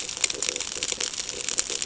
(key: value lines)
label: ambient
recorder: HydroMoth